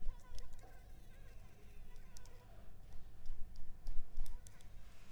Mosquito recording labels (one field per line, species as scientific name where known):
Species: Anopheles arabiensis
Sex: female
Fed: unfed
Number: one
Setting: cup